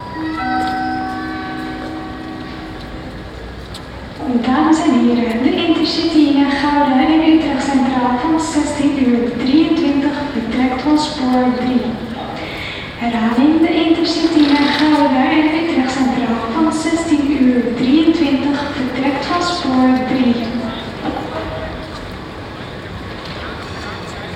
Who is the announcement for?
people